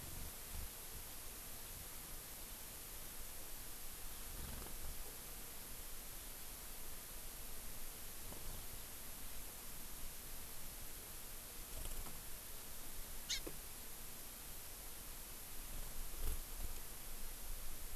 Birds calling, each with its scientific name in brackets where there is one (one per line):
Hawaii Amakihi (Chlorodrepanis virens)